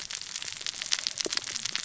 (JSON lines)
{"label": "biophony, cascading saw", "recorder": "SoundTrap 600 or HydroMoth"}